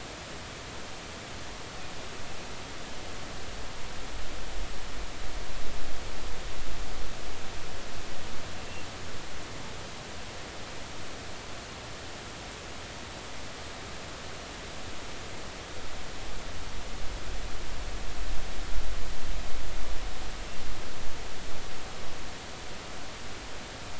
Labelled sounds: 8.6	8.9	killer whale, offshore, 2.6 to 2.8 kHz

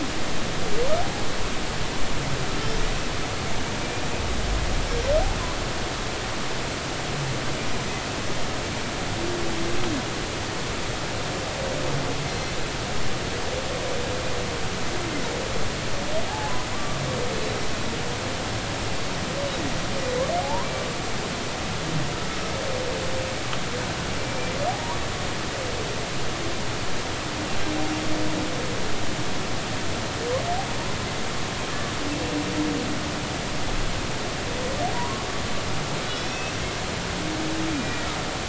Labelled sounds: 12.3	12.5	humpback whale, 4.1 to 4.2 kHz
16.3	17.0	humpback whale, 0.80 to 1.2 kHz
19.6	20.7	humpback whale, 0.80 to 5.9 kHz
24.2	25.0	humpback whale, 0.80 to 2.4 kHz
34.9	36.5	humpback whale, 0.90 to 5.7 kHz
37.7	38.1	humpback whale, 1.9 to 2.5 kHz

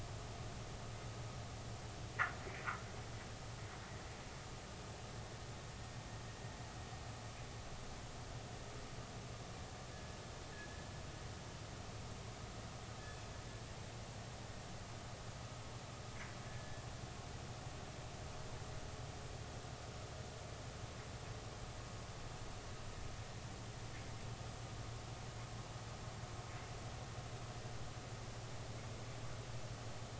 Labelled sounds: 13.0	13.2	killer whale, northern resident, G clan, call N24ii, 3.4 to 3.5 kHz
16.5	16.8	killer whale, northern resident, G clan, call N24ii, 1.6 to 1.9 kHz

